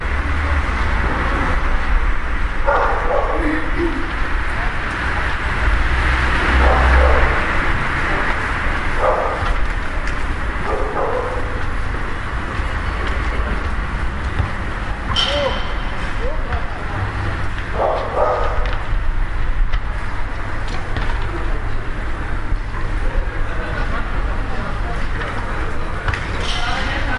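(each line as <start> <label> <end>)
0.0 Cars pass continuously on a busy street. 27.2
2.6 A dog barks loudly on a street. 3.7
3.5 A woman clears her throat on a busy street. 4.2
4.6 A man speaking in the background of a busy street. 6.1
6.5 A dog barks on a busy street. 7.4
9.0 A dog barks on a busy street. 9.6
10.6 A dog barks on a busy street. 11.6
15.1 Metallic clinking sounds on a busy street. 15.8
15.4 A man speaks excitedly on a busy street. 17.7
17.8 A dog barks on a busy street. 18.8
23.7 People laughing on a busy street. 25.0
24.9 Several people are talking simultaneously on a busy street. 27.2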